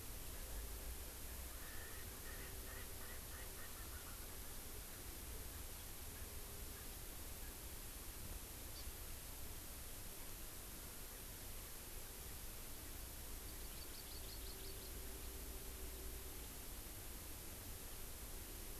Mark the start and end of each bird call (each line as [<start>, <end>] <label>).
[1.20, 4.50] Erckel's Francolin (Pternistis erckelii)
[4.90, 5.10] Erckel's Francolin (Pternistis erckelii)
[5.50, 5.70] Erckel's Francolin (Pternistis erckelii)
[6.10, 6.30] Erckel's Francolin (Pternistis erckelii)
[6.70, 6.90] Erckel's Francolin (Pternistis erckelii)
[7.40, 7.60] Erckel's Francolin (Pternistis erckelii)
[8.70, 8.80] Hawaii Amakihi (Chlorodrepanis virens)
[13.40, 14.90] Hawaii Amakihi (Chlorodrepanis virens)